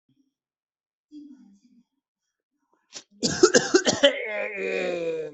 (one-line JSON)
{"expert_labels": [{"quality": "good", "cough_type": "dry", "dyspnea": false, "wheezing": false, "stridor": false, "choking": true, "congestion": false, "nothing": false, "diagnosis": "lower respiratory tract infection", "severity": "severe"}]}